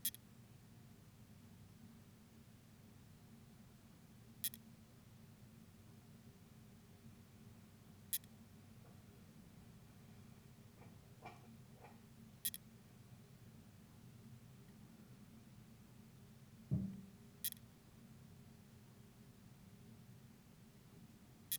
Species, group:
Leptophyes punctatissima
Orthoptera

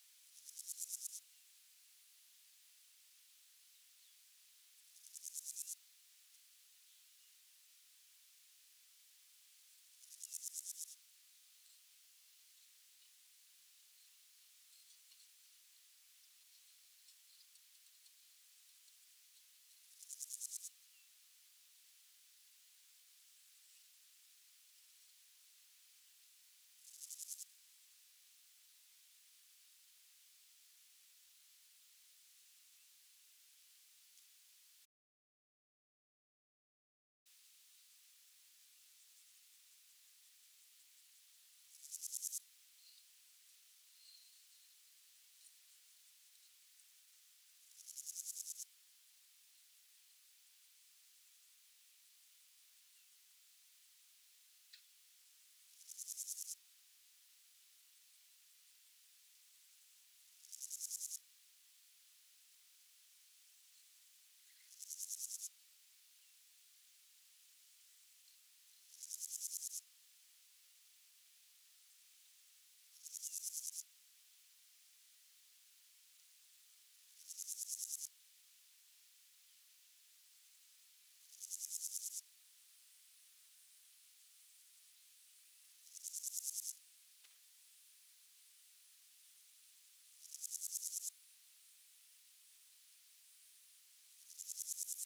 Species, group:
Pseudochorthippus parallelus
Orthoptera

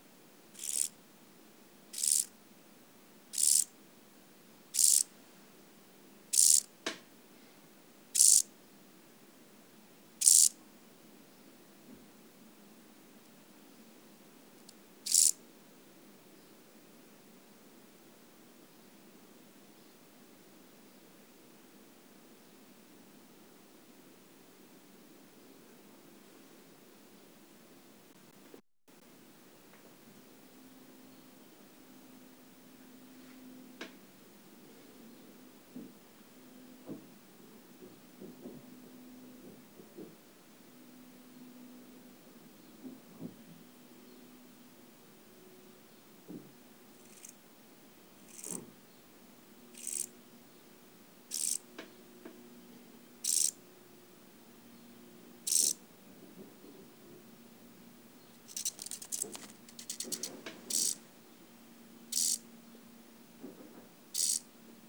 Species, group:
Chorthippus brunneus
Orthoptera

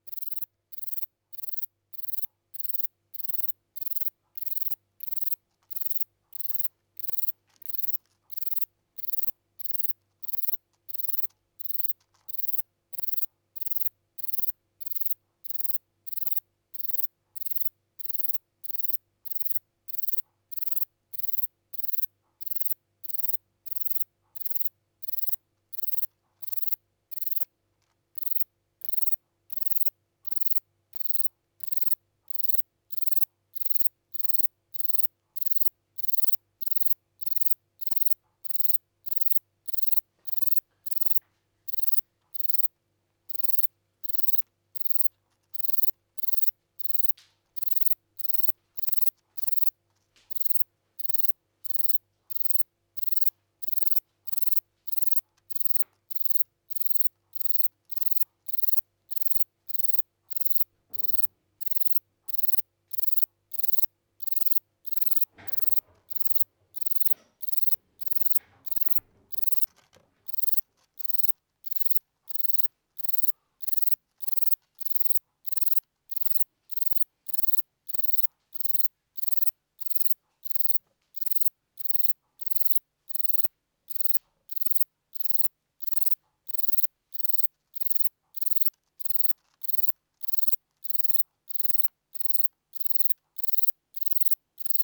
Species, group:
Platycleis sabulosa
Orthoptera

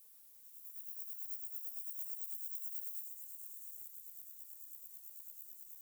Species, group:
Chorthippus bornhalmi
Orthoptera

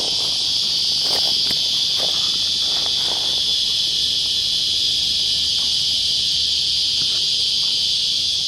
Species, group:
Psaltoda plaga
Cicadidae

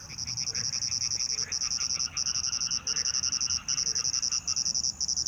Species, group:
Svercus palmetorum
Orthoptera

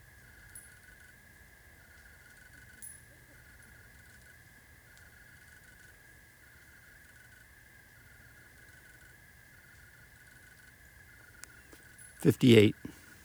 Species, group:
Oecanthus rileyi
Orthoptera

